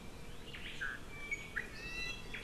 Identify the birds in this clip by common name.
Omao, Iiwi